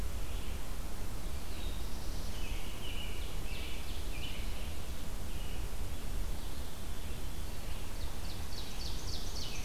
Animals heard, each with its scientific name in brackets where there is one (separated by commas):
Red-eyed Vireo (Vireo olivaceus), American Robin (Turdus migratorius), Ovenbird (Seiurus aurocapilla), Veery (Catharus fuscescens), Black-throated Blue Warbler (Setophaga caerulescens)